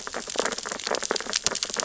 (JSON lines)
{"label": "biophony, sea urchins (Echinidae)", "recorder": "SoundTrap 600 or HydroMoth"}